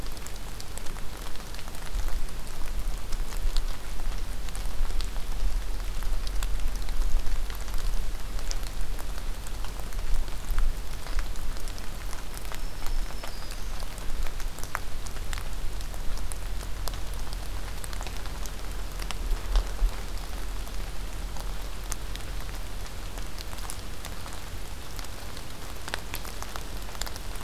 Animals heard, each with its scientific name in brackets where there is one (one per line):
Black-throated Green Warbler (Setophaga virens)